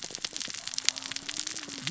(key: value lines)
label: biophony, cascading saw
recorder: SoundTrap 600 or HydroMoth